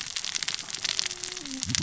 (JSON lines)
{"label": "biophony, cascading saw", "recorder": "SoundTrap 600 or HydroMoth"}